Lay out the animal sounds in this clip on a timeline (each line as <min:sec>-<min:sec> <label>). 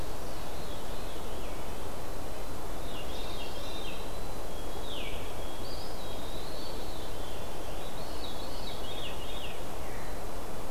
0:00.3-0:01.4 Veery (Catharus fuscescens)
0:01.8-0:03.0 Black-capped Chickadee (Poecile atricapillus)
0:02.8-0:04.1 Veery (Catharus fuscescens)
0:03.8-0:06.3 White-throated Sparrow (Zonotrichia albicollis)
0:05.5-0:06.8 Eastern Wood-Pewee (Contopus virens)
0:06.4-0:09.5 Veery (Catharus fuscescens)
0:09.8-0:10.1 Veery (Catharus fuscescens)
0:09.8-0:10.7 Black-capped Chickadee (Poecile atricapillus)